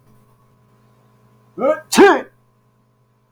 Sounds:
Sneeze